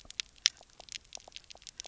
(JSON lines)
{"label": "biophony, pulse", "recorder": "SoundTrap 300"}